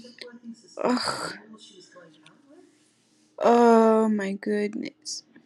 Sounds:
Sigh